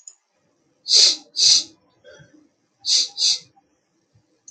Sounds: Sniff